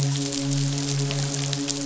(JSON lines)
{"label": "biophony, midshipman", "recorder": "SoundTrap 500"}